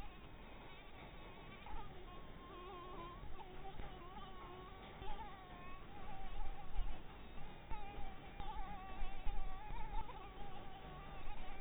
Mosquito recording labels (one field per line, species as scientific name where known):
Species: Anopheles barbirostris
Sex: female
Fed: blood-fed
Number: one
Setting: cup